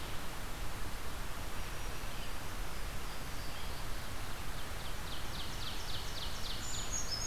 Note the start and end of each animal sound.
[0.00, 7.27] Red-eyed Vireo (Vireo olivaceus)
[1.34, 2.72] Black-throated Green Warbler (Setophaga virens)
[2.88, 3.99] Louisiana Waterthrush (Parkesia motacilla)
[4.30, 6.98] Ovenbird (Seiurus aurocapilla)
[6.31, 7.27] Brown Creeper (Certhia americana)

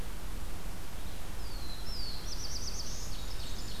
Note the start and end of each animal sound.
[0.00, 3.80] Red-eyed Vireo (Vireo olivaceus)
[0.78, 3.43] Black-throated Blue Warbler (Setophaga caerulescens)
[2.86, 3.80] Ovenbird (Seiurus aurocapilla)
[3.13, 3.80] Blackburnian Warbler (Setophaga fusca)

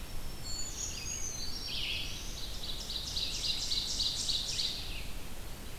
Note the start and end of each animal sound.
[0.00, 1.01] Black-throated Green Warbler (Setophaga virens)
[0.00, 5.78] Red-eyed Vireo (Vireo olivaceus)
[0.25, 1.86] Brown Creeper (Certhia americana)
[1.30, 2.49] Black-throated Blue Warbler (Setophaga caerulescens)
[2.04, 4.91] Ovenbird (Seiurus aurocapilla)

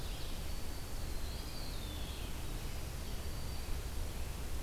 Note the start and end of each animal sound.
[0.00, 0.26] Ovenbird (Seiurus aurocapilla)
[0.00, 4.15] Winter Wren (Troglodytes hiemalis)
[1.15, 1.82] Eastern Wood-Pewee (Contopus virens)
[1.68, 4.62] Red-eyed Vireo (Vireo olivaceus)

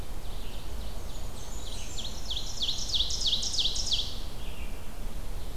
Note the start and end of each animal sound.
[0.00, 5.56] Red-eyed Vireo (Vireo olivaceus)
[0.07, 4.16] Ovenbird (Seiurus aurocapilla)
[0.89, 2.16] Blackburnian Warbler (Setophaga fusca)

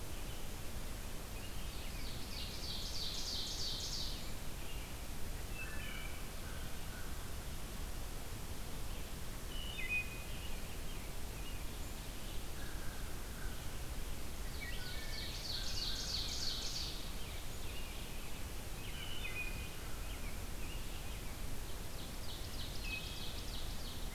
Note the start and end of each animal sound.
[0.00, 13.80] Red-eyed Vireo (Vireo olivaceus)
[1.26, 4.34] Ovenbird (Seiurus aurocapilla)
[5.40, 6.14] Wood Thrush (Hylocichla mustelina)
[6.42, 7.30] American Crow (Corvus brachyrhynchos)
[9.40, 10.21] Wood Thrush (Hylocichla mustelina)
[9.77, 12.46] American Robin (Turdus migratorius)
[12.59, 13.60] American Crow (Corvus brachyrhynchos)
[14.50, 15.06] Wood Thrush (Hylocichla mustelina)
[14.63, 17.08] Ovenbird (Seiurus aurocapilla)
[15.31, 16.76] American Crow (Corvus brachyrhynchos)
[17.03, 21.10] American Robin (Turdus migratorius)
[17.63, 24.14] Red-eyed Vireo (Vireo olivaceus)
[18.84, 19.61] Wood Thrush (Hylocichla mustelina)
[21.56, 24.14] Ovenbird (Seiurus aurocapilla)
[22.69, 23.59] Wood Thrush (Hylocichla mustelina)

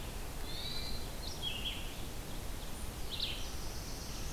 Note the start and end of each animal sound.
[0.36, 1.13] Hermit Thrush (Catharus guttatus)
[1.14, 4.33] Red-eyed Vireo (Vireo olivaceus)
[2.81, 4.33] Black-throated Blue Warbler (Setophaga caerulescens)

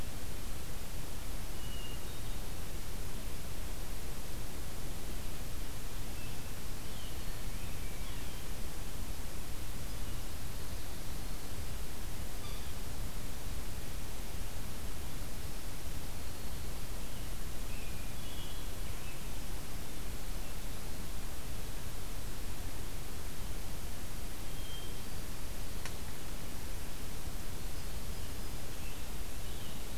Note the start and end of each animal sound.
[1.38, 2.87] Hermit Thrush (Catharus guttatus)
[6.93, 8.75] Hermit Thrush (Catharus guttatus)
[8.01, 8.39] Yellow-bellied Sapsucker (Sphyrapicus varius)
[12.33, 12.75] Yellow-bellied Sapsucker (Sphyrapicus varius)
[16.98, 19.38] American Robin (Turdus migratorius)
[24.33, 25.62] Hermit Thrush (Catharus guttatus)
[27.50, 28.71] Hermit Thrush (Catharus guttatus)
[28.57, 29.98] American Robin (Turdus migratorius)

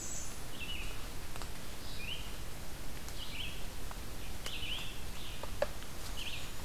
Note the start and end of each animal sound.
[0.00, 6.65] Red-eyed Vireo (Vireo olivaceus)

